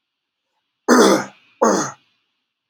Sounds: Throat clearing